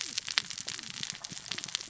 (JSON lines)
{"label": "biophony, cascading saw", "recorder": "SoundTrap 600 or HydroMoth"}